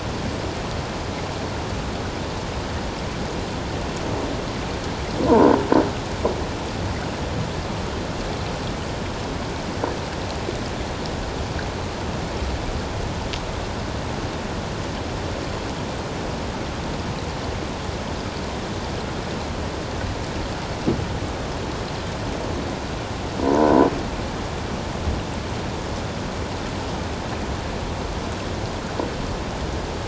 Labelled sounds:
5.2	5.5	croaking sound likely from a nearby submerged object, 0.84 to 1.1 kHz

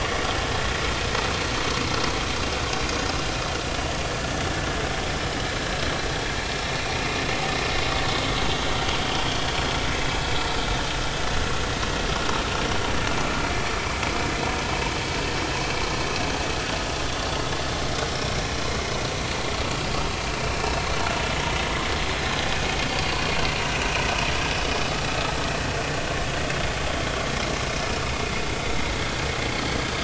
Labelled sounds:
9.9	10.2	vessel noise, 2.5 to 2.7 kHz
18.1	18.5	vessel noise, 5.2 to 5.5 kHz
20.6	20.9	vessel noise, 4.1 to 4.3 kHz
22.9	23.5	vessel noise, 4.2 to 4.7 kHz

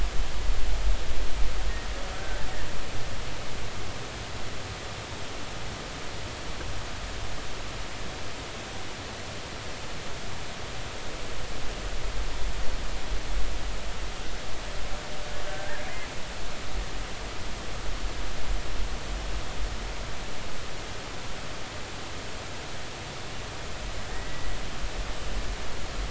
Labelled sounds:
2.1	2.4	killer whale, Bigg's (transient), 1.4 to 1.6 kHz
15.5	15.8	killer whale, Bigg's (transient), 1.5 to 1.9 kHz
24.1	24.5	killer whale, Bigg's (transient), 1.8 to 2.0 kHz

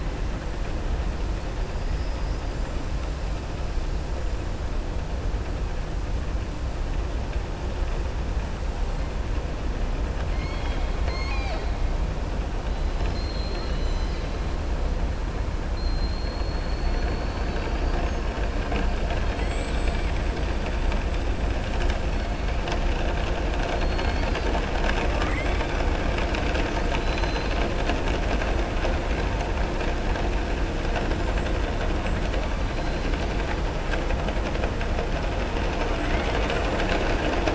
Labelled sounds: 10.2	11.7	killer whale, southern resident, 0.67 to 6.5 kHz
12.9	14.3	killer whale, southern resident, 1.4 to 7.5 kHz
19.3	20.1	killer whale, southern resident, 7.2 to 8.0 kHz
23.7	24.5	killer whale, southern resident, 1.8 to 4.8 kHz

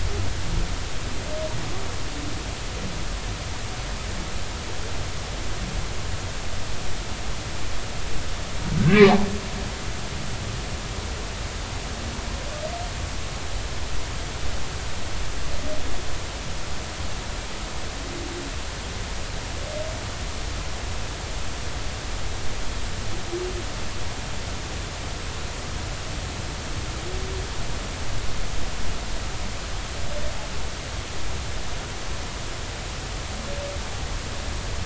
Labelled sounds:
8.8	9.0	humpback whale, 1.5 to 1.7 kHz

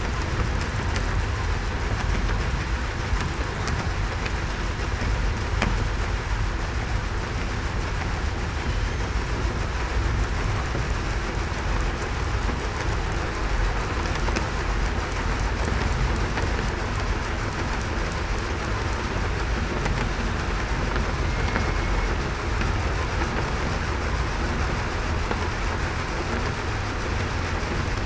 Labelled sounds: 21.2	21.8	killer whale, southern resident, 2.1 to 2.2 kHz

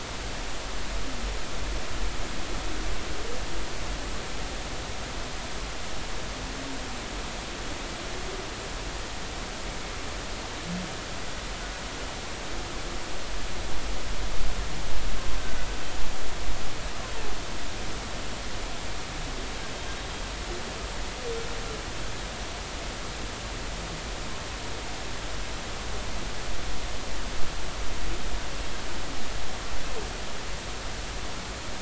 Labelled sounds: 15.4	15.7	humpback whale, 1.4 to 1.6 kHz

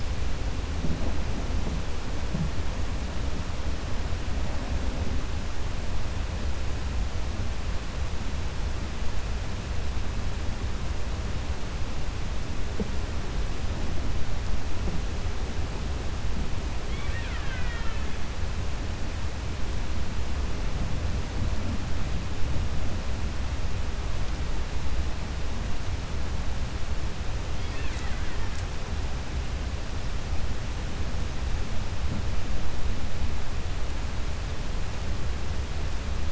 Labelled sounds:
16.8	18.1	killer whale, Bigg's (transient), 1.1 to 3.8 kHz
27.5	28.5	killer whale, Bigg's (transient), 0.91 to 4.9 kHz

